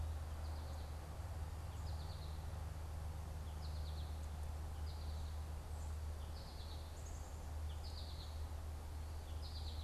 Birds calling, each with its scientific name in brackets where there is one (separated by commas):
American Goldfinch (Spinus tristis)